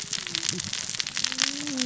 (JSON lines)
{"label": "biophony, cascading saw", "recorder": "SoundTrap 600 or HydroMoth"}